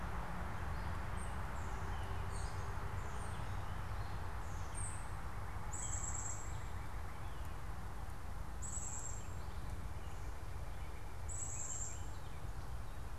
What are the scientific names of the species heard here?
unidentified bird, Cardinalis cardinalis, Poecile atricapillus